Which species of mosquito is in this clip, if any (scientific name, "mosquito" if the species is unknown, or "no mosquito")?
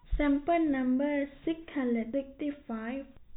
no mosquito